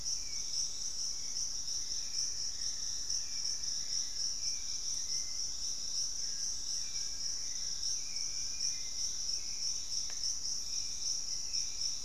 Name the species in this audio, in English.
Hauxwell's Thrush, Buff-throated Woodcreeper, Fasciated Antshrike